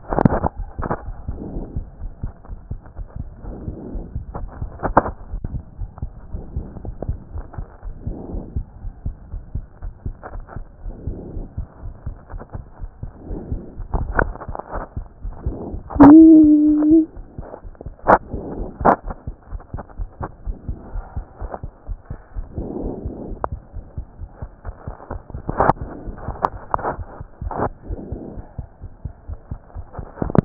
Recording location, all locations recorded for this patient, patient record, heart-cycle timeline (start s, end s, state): aortic valve (AV)
aortic valve (AV)+pulmonary valve (PV)+tricuspid valve (TV)+mitral valve (MV)
#Age: Child
#Sex: Male
#Height: 131.0 cm
#Weight: 26.5 kg
#Pregnancy status: False
#Murmur: Absent
#Murmur locations: nan
#Most audible location: nan
#Systolic murmur timing: nan
#Systolic murmur shape: nan
#Systolic murmur grading: nan
#Systolic murmur pitch: nan
#Systolic murmur quality: nan
#Diastolic murmur timing: nan
#Diastolic murmur shape: nan
#Diastolic murmur grading: nan
#Diastolic murmur pitch: nan
#Diastolic murmur quality: nan
#Outcome: Normal
#Campaign: 2014 screening campaign
0.00	5.14	unannotated
5.14	5.30	diastole
5.30	5.42	S1
5.42	5.52	systole
5.52	5.62	S2
5.62	5.80	diastole
5.80	5.90	S1
5.90	6.00	systole
6.00	6.10	S2
6.10	6.32	diastole
6.32	6.46	S1
6.46	6.54	systole
6.54	6.68	S2
6.68	6.86	diastole
6.86	6.96	S1
6.96	7.04	systole
7.04	7.16	S2
7.16	7.32	diastole
7.32	7.46	S1
7.46	7.56	systole
7.56	7.66	S2
7.66	7.86	diastole
7.86	7.98	S1
7.98	8.04	systole
8.04	8.14	S2
8.14	8.32	diastole
8.32	8.44	S1
8.44	8.54	systole
8.54	8.64	S2
8.64	8.84	diastole
8.84	8.94	S1
8.94	9.04	systole
9.04	9.16	S2
9.16	9.34	diastole
9.34	9.44	S1
9.44	9.52	systole
9.52	9.64	S2
9.64	9.84	diastole
9.84	9.94	S1
9.94	10.04	systole
10.04	10.14	S2
10.14	10.32	diastole
10.32	10.44	S1
10.44	10.54	systole
10.54	10.64	S2
10.64	10.84	diastole
10.84	10.96	S1
10.96	11.06	systole
11.06	11.16	S2
11.16	11.34	diastole
11.34	11.46	S1
11.46	11.56	systole
11.56	11.66	S2
11.66	11.84	diastole
11.84	11.94	S1
11.94	12.04	systole
12.04	12.16	S2
12.16	12.34	diastole
12.34	12.44	S1
12.44	12.52	systole
12.52	12.64	S2
12.64	12.82	diastole
12.82	12.92	S1
12.92	13.00	systole
13.00	13.10	S2
13.10	13.20	diastole
13.20	30.45	unannotated